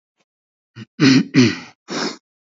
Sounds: Throat clearing